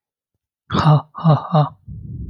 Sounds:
Laughter